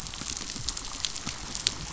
{"label": "biophony, damselfish", "recorder": "SoundTrap 500"}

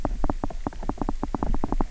{"label": "biophony, knock", "recorder": "SoundTrap 300"}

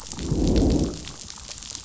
{"label": "biophony, growl", "recorder": "SoundTrap 500"}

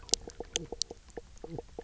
{"label": "biophony, knock croak", "recorder": "SoundTrap 300"}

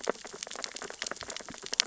{"label": "biophony, sea urchins (Echinidae)", "recorder": "SoundTrap 600 or HydroMoth"}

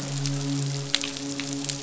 {"label": "biophony, midshipman", "recorder": "SoundTrap 500"}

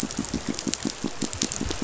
{"label": "biophony, pulse", "recorder": "SoundTrap 500"}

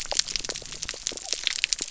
{"label": "biophony", "recorder": "SoundTrap 300"}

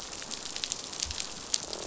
{"label": "biophony, croak", "recorder": "SoundTrap 500"}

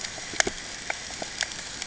{"label": "ambient", "recorder": "HydroMoth"}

